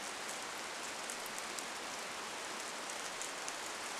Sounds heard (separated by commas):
rain